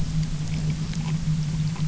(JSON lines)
{"label": "anthrophony, boat engine", "recorder": "SoundTrap 300"}